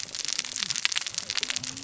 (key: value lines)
label: biophony, cascading saw
recorder: SoundTrap 600 or HydroMoth